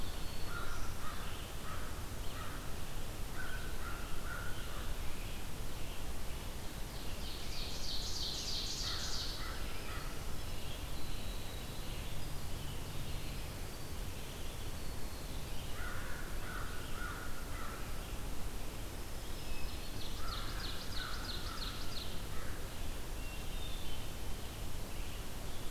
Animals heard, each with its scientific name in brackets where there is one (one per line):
Winter Wren (Troglodytes hiemalis)
Hermit Thrush (Catharus guttatus)
Ovenbird (Seiurus aurocapilla)
American Crow (Corvus brachyrhynchos)
Black-throated Green Warbler (Setophaga virens)
Red-eyed Vireo (Vireo olivaceus)